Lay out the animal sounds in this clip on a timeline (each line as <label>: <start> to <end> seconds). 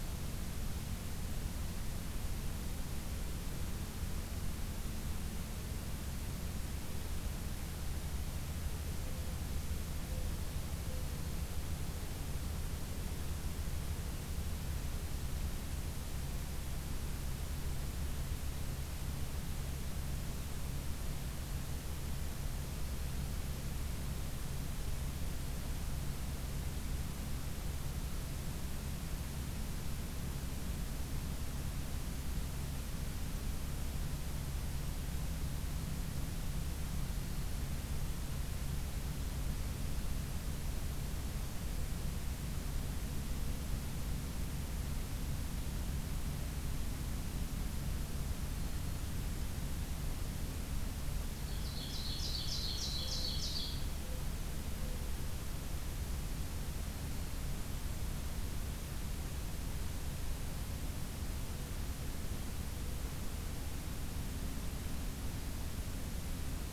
Mourning Dove (Zenaida macroura): 9.0 to 11.4 seconds
Black-throated Green Warbler (Setophaga virens): 10.9 to 11.3 seconds
Black-throated Green Warbler (Setophaga virens): 37.1 to 37.7 seconds
Black-throated Green Warbler (Setophaga virens): 48.6 to 49.2 seconds
Ovenbird (Seiurus aurocapilla): 51.4 to 53.8 seconds
Mourning Dove (Zenaida macroura): 52.9 to 55.1 seconds
Black-throated Green Warbler (Setophaga virens): 56.9 to 57.5 seconds